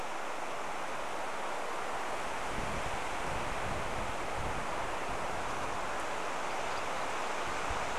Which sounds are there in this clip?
MacGillivray's Warbler song